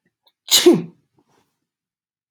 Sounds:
Sneeze